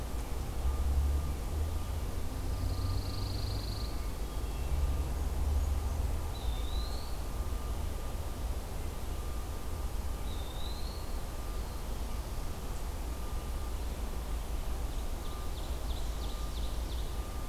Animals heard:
Ovenbird (Seiurus aurocapilla), Eastern Wood-Pewee (Contopus virens), Pine Warbler (Setophaga pinus), Hermit Thrush (Catharus guttatus), Blackburnian Warbler (Setophaga fusca)

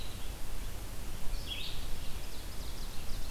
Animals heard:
Red-eyed Vireo (Vireo olivaceus), Ovenbird (Seiurus aurocapilla)

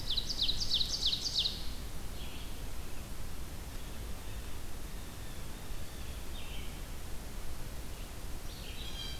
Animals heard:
Red-eyed Vireo (Vireo olivaceus), Blue Jay (Cyanocitta cristata), Ovenbird (Seiurus aurocapilla)

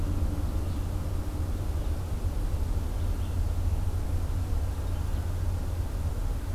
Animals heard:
Red-eyed Vireo (Vireo olivaceus)

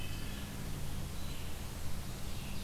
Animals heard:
Wood Thrush (Hylocichla mustelina), Red-eyed Vireo (Vireo olivaceus)

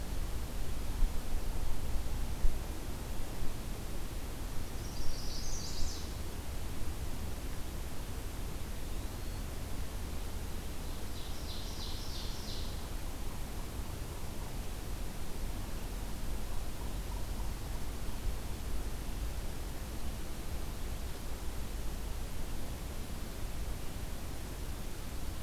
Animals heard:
Chestnut-sided Warbler (Setophaga pensylvanica), Ovenbird (Seiurus aurocapilla), Eastern Wood-Pewee (Contopus virens)

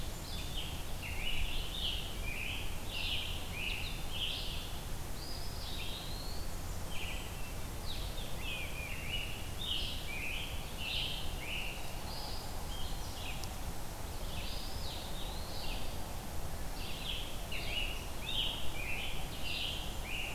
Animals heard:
Eastern Wood-Pewee (Contopus virens), Scarlet Tanager (Piranga olivacea), Red-eyed Vireo (Vireo olivaceus), Blackburnian Warbler (Setophaga fusca)

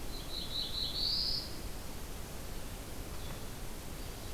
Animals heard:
Black-throated Blue Warbler (Setophaga caerulescens)

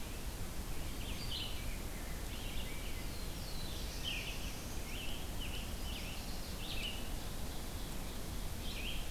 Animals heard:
Black-throated Blue Warbler (Setophaga caerulescens), Red-eyed Vireo (Vireo olivaceus), Rose-breasted Grosbeak (Pheucticus ludovicianus), Chestnut-sided Warbler (Setophaga pensylvanica), Scarlet Tanager (Piranga olivacea)

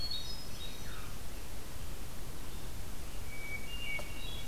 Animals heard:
Red-eyed Vireo (Vireo olivaceus), Hermit Thrush (Catharus guttatus)

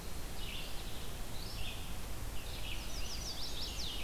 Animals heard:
Red-eyed Vireo (Vireo olivaceus), Scarlet Tanager (Piranga olivacea), Chestnut-sided Warbler (Setophaga pensylvanica)

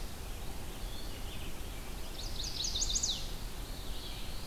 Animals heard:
Red-eyed Vireo (Vireo olivaceus), Black-throated Blue Warbler (Setophaga caerulescens), Chestnut-sided Warbler (Setophaga pensylvanica)

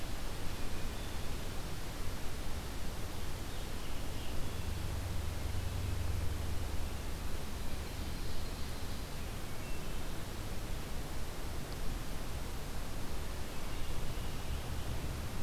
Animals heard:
Scarlet Tanager (Piranga olivacea), Ovenbird (Seiurus aurocapilla), Hermit Thrush (Catharus guttatus)

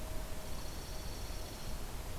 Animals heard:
Dark-eyed Junco (Junco hyemalis)

